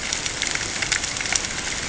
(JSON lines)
{"label": "ambient", "recorder": "HydroMoth"}